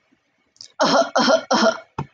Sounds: Cough